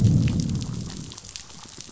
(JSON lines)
{"label": "biophony, growl", "recorder": "SoundTrap 500"}